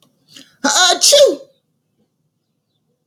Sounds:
Sneeze